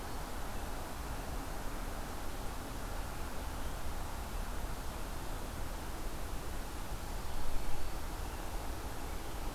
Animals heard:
forest ambience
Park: Marsh-Billings-Rockefeller National Historical Park